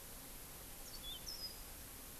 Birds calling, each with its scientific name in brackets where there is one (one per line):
Yellow-fronted Canary (Crithagra mozambica)